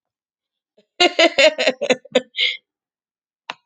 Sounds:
Laughter